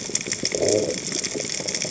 {"label": "biophony", "recorder": "HydroMoth"}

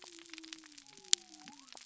{"label": "biophony", "recorder": "SoundTrap 300"}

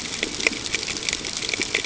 {"label": "ambient", "recorder": "HydroMoth"}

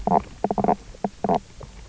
{"label": "biophony, knock croak", "recorder": "SoundTrap 300"}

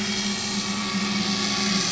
{"label": "anthrophony, boat engine", "recorder": "SoundTrap 500"}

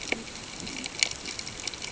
{"label": "ambient", "recorder": "HydroMoth"}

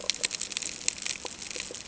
{"label": "ambient", "recorder": "HydroMoth"}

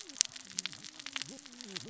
{"label": "biophony, cascading saw", "recorder": "SoundTrap 600 or HydroMoth"}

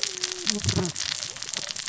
{"label": "biophony, cascading saw", "recorder": "SoundTrap 600 or HydroMoth"}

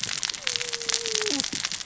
{"label": "biophony, cascading saw", "recorder": "SoundTrap 600 or HydroMoth"}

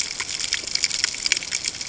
{"label": "ambient", "recorder": "HydroMoth"}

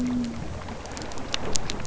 {"label": "biophony", "recorder": "SoundTrap 300"}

